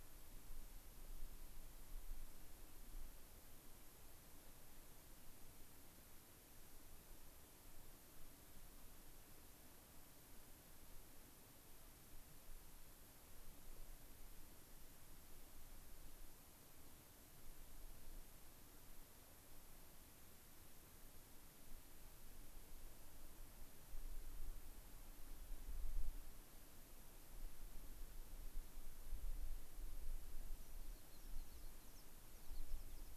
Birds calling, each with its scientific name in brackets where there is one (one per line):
American Pipit (Anthus rubescens)